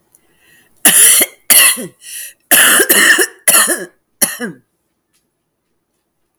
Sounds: Cough